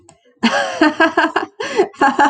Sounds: Laughter